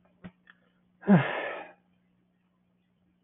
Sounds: Sigh